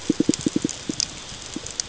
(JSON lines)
{"label": "ambient", "recorder": "HydroMoth"}